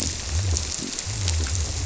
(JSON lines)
{"label": "biophony", "recorder": "SoundTrap 300"}